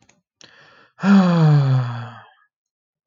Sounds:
Sigh